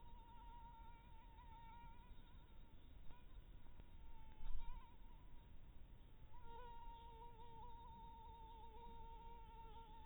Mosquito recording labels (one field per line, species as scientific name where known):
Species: Anopheles harrisoni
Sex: female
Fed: blood-fed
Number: one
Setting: cup